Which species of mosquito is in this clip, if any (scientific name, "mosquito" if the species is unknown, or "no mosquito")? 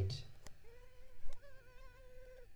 Culex pipiens complex